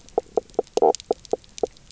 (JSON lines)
{"label": "biophony, knock croak", "recorder": "SoundTrap 300"}